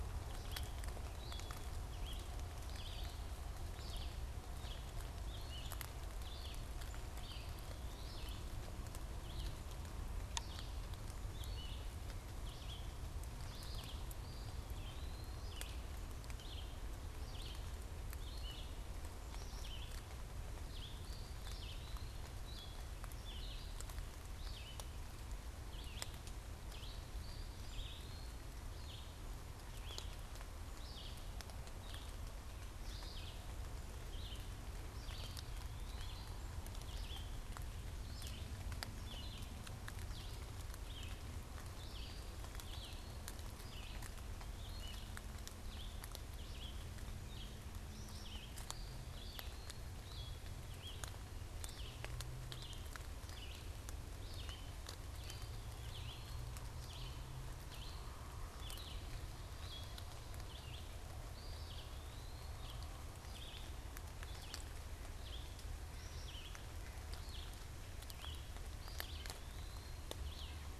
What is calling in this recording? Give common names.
Red-eyed Vireo, Eastern Wood-Pewee, White-breasted Nuthatch